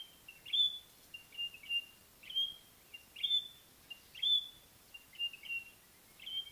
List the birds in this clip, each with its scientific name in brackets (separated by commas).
White-browed Robin-Chat (Cossypha heuglini)